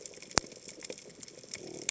{"label": "biophony", "recorder": "HydroMoth"}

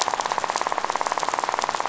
{"label": "biophony, rattle", "recorder": "SoundTrap 500"}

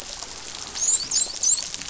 {"label": "biophony, dolphin", "recorder": "SoundTrap 500"}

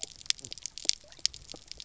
{"label": "biophony, knock croak", "recorder": "SoundTrap 300"}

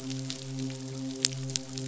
{"label": "biophony, midshipman", "recorder": "SoundTrap 500"}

